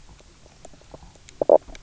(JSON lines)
{"label": "biophony, knock croak", "recorder": "SoundTrap 300"}